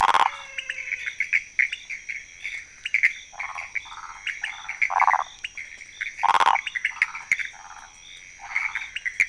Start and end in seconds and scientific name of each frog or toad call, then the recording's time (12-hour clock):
0.2	1.3	Physalaemus albonotatus
0.5	9.2	Leptodactylus podicipinus
0.5	9.2	Pithecopus azureus
3.2	9.2	Phyllomedusa sauvagii
12:00am